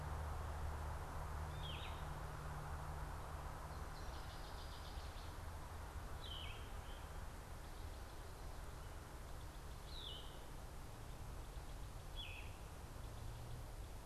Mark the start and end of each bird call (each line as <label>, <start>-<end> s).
Yellow-throated Vireo (Vireo flavifrons), 0.0-14.1 s